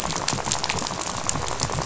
{"label": "biophony, rattle", "recorder": "SoundTrap 500"}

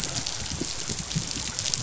{"label": "biophony", "recorder": "SoundTrap 500"}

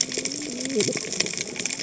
{"label": "biophony, cascading saw", "recorder": "HydroMoth"}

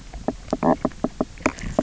{"label": "biophony, knock croak", "recorder": "SoundTrap 300"}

